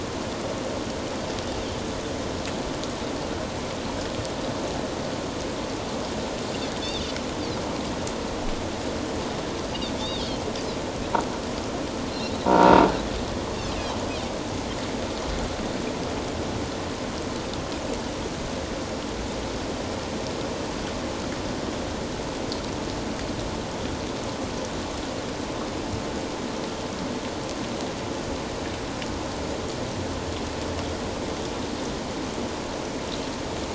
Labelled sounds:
10.0	10.4	Pacific white-sided dolphin, 3.0 to 3.8 kHz
12.4	12.8	croaking sound likely from a nearby submerged object, 0.88 to 1.0 kHz

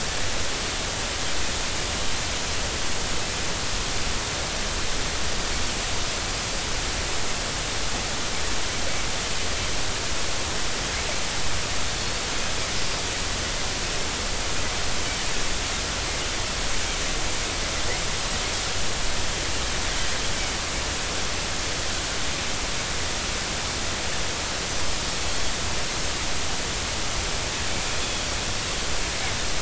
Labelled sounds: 28.0	28.3	Pacific white-sided dolphin, 3.2 to 3.5 kHz

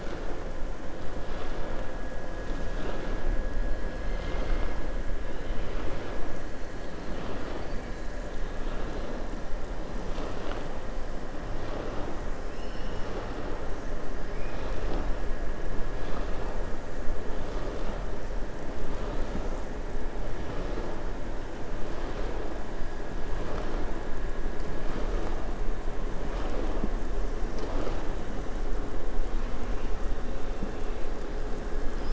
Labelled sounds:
12.5	13.2	killer whale, southern resident, 2.6 to 3.9 kHz

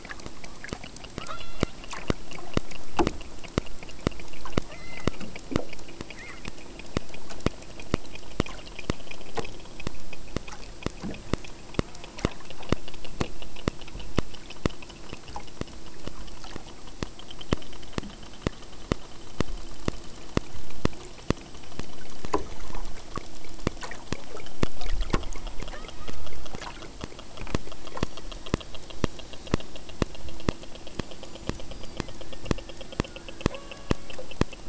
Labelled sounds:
1.2	1.8	killer whale, southern Alaska resident, 0.57 to 5.1 kHz
4.6	5.2	killer whale, southern Alaska resident, 0.51 to 5.9 kHz
6.1	6.4	killer whale, southern Alaska resident, 0.62 to 3.4 kHz
25.6	26.4	killer whale, southern Alaska resident, 0.87 to 4.0 kHz
31.2	32.0	killer whale, southern Alaska resident, 4.6 to 7.2 kHz
33.4	34.1	killer whale, southern Alaska resident, 0.51 to 3.6 kHz

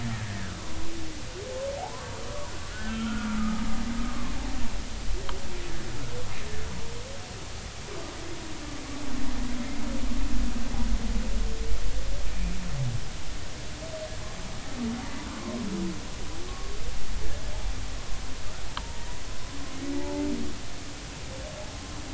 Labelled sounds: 1.8	3.6	humpback whale, 0.80 to 3.2 kHz
16.5	16.7	humpback whale, 1.06 to 1.12 kHz
18.8	20.3	humpback whale, 0.83 to 1.3 kHz

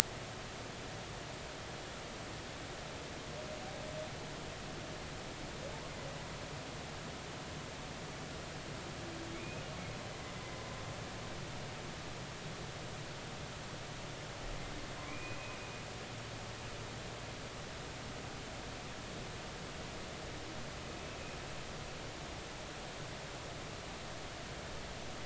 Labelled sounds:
9.4	9.6	humpback whale, 2.4 to 2.6 kHz
15.1	15.4	humpback whale, 2.2 to 2.5 kHz
20.8	21.4	humpback whale, 2.4 to 2.7 kHz

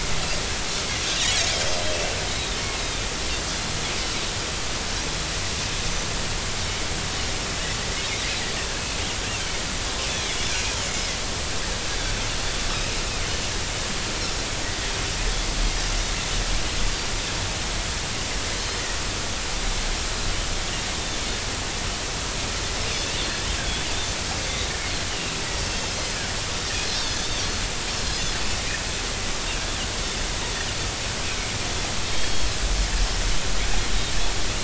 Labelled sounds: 2.8	3.0	Pacific white-sided dolphin, 3.5 to 3.9 kHz
5.8	6.1	Pacific white-sided dolphin, 5.9 to 6.2 kHz
10.1	10.8	Pacific white-sided dolphin, 2.0 to 2.7 kHz
25.1	25.4	Pacific white-sided dolphin, 2.5 to 3.1 kHz
27.2	28.4	Pacific white-sided dolphin, 3.1 to 3.7 kHz
32.1	32.6	Pacific white-sided dolphin, 3.1 to 4.4 kHz

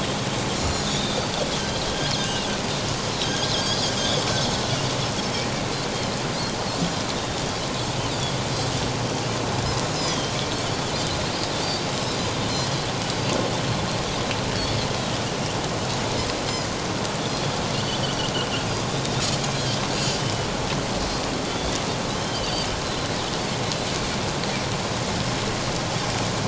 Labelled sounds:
0.8	1.2	Pacific white-sided dolphin, 3.3 to 3.9 kHz
1.9	2.1	Pacific white-sided dolphin, 3.1 to 3.4 kHz
3.2	3.9	Pacific white-sided dolphin, 1.5 to 5.0 kHz
9.9	10.4	Pacific white-sided dolphin, 3.1 to 5.2 kHz
11.6	12.7	Pacific white-sided dolphin, 4.0 to 4.8 kHz
18.0	18.3	Pacific white-sided dolphin, 2.8 to 3.2 kHz
19.9	20.2	Pacific white-sided dolphin, 4.6 to 7.0 kHz
21.5	22.7	Pacific white-sided dolphin, 2.7 to 4.8 kHz

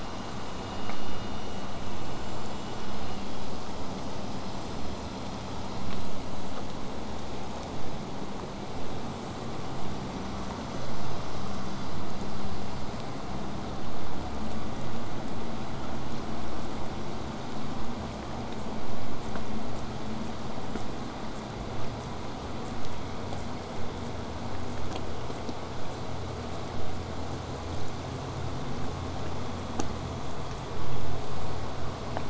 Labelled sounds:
4.5	4.7	killer whale, southern resident, J pod, call S05, 7.2 to 8.0 kHz
21.3	27.7	killer whale, 5.4 to 8.0 kHz

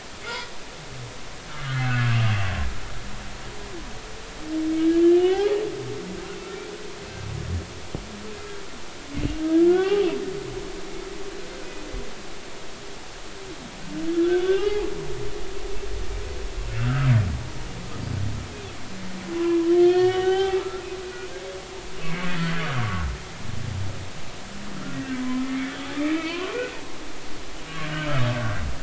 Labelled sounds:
1.8	2.1	humpback whale, 1.3 to 1.6 kHz
5.2	5.6	humpback whale, 0.80 to 3.3 kHz
6.4	6.7	humpback whale, 1.3 to 1.5 kHz
9.7	10.1	humpback whale, 0.80 to 1.6 kHz
14.1	14.9	humpback whale, 0.80 to 1.6 kHz
16.8	17.1	humpback whale, 1.2 to 1.7 kHz
19.8	20.9	humpback whale, 0.80 to 3.8 kHz
22.0	22.3	humpback whale, 2.0 to 2.3 kHz
22.8	23.1	humpback whale, 1.1 to 1.2 kHz
25.2	25.7	humpback whale, 0.96 to 2.3 kHz
26.1	26.6	humpback whale, 0.90 to 3.1 kHz
27.8	28.1	humpback whale, 1.5 to 1.7 kHz

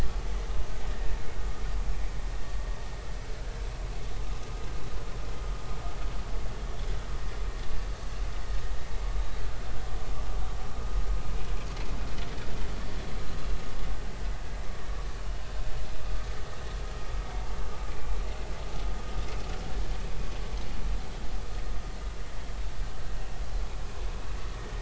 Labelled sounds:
17.9	18.1	vessel noise, 2.3 to 2.4 kHz

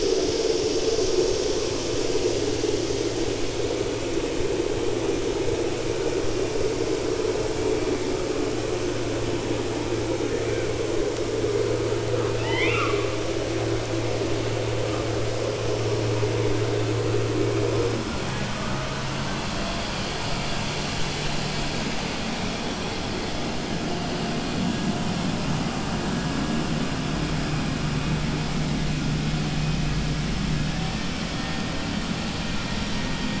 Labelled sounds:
12.1	13.1	killer whale, 0.52 to 5.1 kHz

